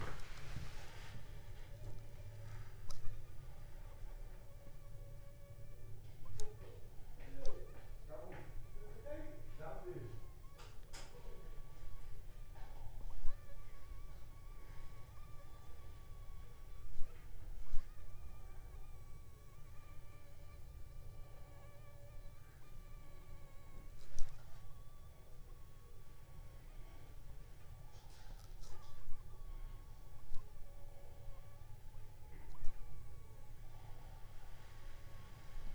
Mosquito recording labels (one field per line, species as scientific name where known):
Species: Anopheles funestus s.s.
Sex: female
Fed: unfed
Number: one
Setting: cup